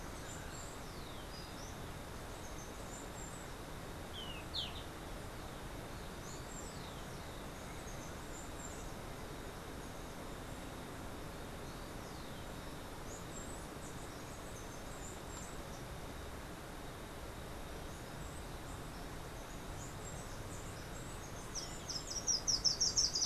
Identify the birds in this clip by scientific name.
Saucerottia saucerottei, Zimmerius chrysops, Myioborus miniatus